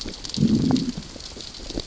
{"label": "biophony, growl", "recorder": "SoundTrap 600 or HydroMoth"}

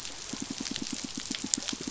{"label": "biophony, pulse", "recorder": "SoundTrap 500"}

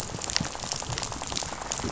{"label": "biophony, rattle", "recorder": "SoundTrap 500"}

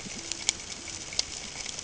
{"label": "ambient", "recorder": "HydroMoth"}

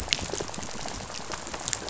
{"label": "biophony, rattle", "recorder": "SoundTrap 500"}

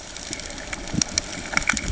{"label": "ambient", "recorder": "HydroMoth"}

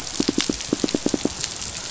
{"label": "biophony, pulse", "recorder": "SoundTrap 500"}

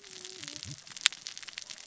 {"label": "biophony, cascading saw", "recorder": "SoundTrap 600 or HydroMoth"}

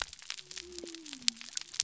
{"label": "biophony", "recorder": "SoundTrap 300"}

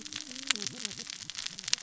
{"label": "biophony, cascading saw", "recorder": "SoundTrap 600 or HydroMoth"}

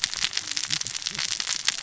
{"label": "biophony, cascading saw", "recorder": "SoundTrap 600 or HydroMoth"}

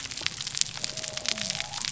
{"label": "biophony", "recorder": "SoundTrap 300"}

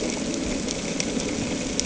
{"label": "anthrophony, boat engine", "recorder": "HydroMoth"}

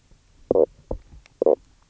{"label": "biophony, knock croak", "recorder": "SoundTrap 300"}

